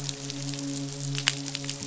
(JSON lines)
{"label": "biophony, midshipman", "recorder": "SoundTrap 500"}